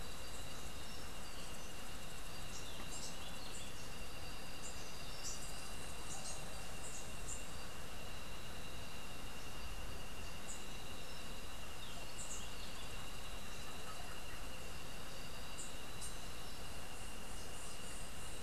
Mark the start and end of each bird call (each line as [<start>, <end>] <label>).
[2.38, 7.68] Rufous-capped Warbler (Basileuterus rufifrons)
[10.18, 12.58] Rufous-capped Warbler (Basileuterus rufifrons)